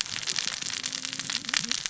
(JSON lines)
{"label": "biophony, cascading saw", "recorder": "SoundTrap 600 or HydroMoth"}